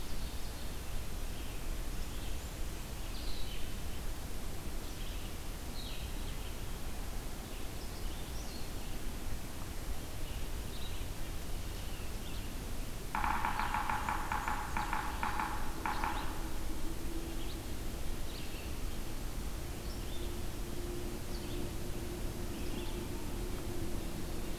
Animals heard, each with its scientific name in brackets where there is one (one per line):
Blackburnian Warbler (Setophaga fusca)
Yellow-bellied Sapsucker (Sphyrapicus varius)
Red-eyed Vireo (Vireo olivaceus)
Blue-headed Vireo (Vireo solitarius)
Ovenbird (Seiurus aurocapilla)